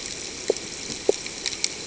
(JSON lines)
{"label": "ambient", "recorder": "HydroMoth"}